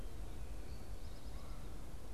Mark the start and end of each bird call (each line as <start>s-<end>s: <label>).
0.6s-1.4s: Eastern Towhee (Pipilo erythrophthalmus)